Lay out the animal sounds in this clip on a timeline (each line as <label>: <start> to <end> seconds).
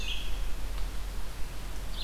Red-eyed Vireo (Vireo olivaceus): 0.0 to 2.0 seconds